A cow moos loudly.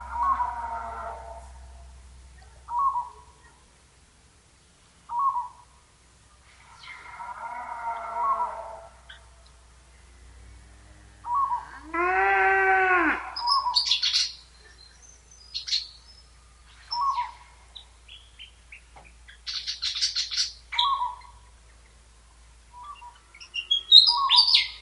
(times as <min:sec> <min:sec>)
0:11.9 0:13.3